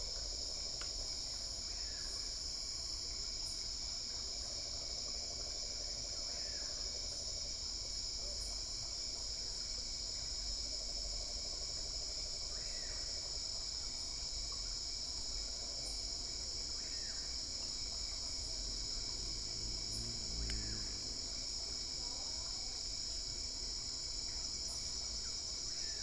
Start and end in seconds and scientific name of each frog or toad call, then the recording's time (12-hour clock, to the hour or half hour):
none
~8pm